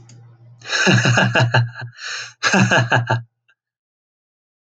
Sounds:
Laughter